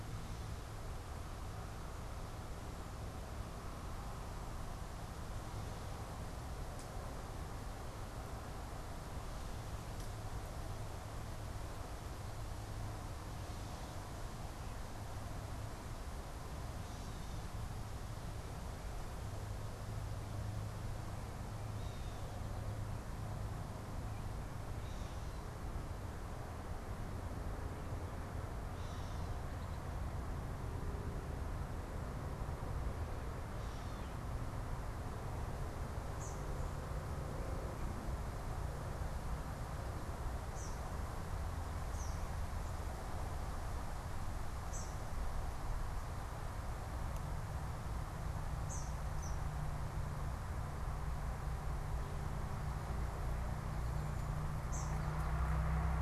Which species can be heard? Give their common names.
Gray Catbird, Eastern Kingbird, Cedar Waxwing